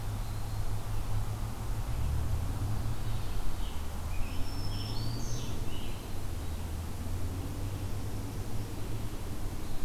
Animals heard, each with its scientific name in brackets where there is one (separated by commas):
Black-throated Green Warbler (Setophaga virens), Scarlet Tanager (Piranga olivacea)